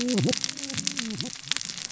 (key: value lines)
label: biophony, cascading saw
recorder: SoundTrap 600 or HydroMoth